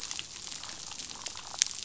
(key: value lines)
label: biophony, damselfish
recorder: SoundTrap 500